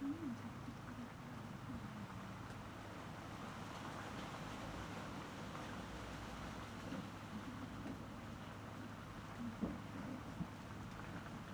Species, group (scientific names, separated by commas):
Eumodicogryllus bordigalensis, Orthoptera